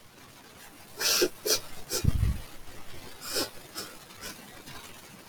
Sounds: Sniff